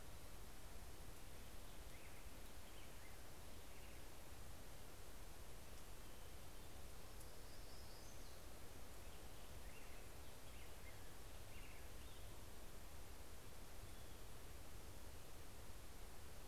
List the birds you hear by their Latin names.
Pheucticus melanocephalus, Setophaga occidentalis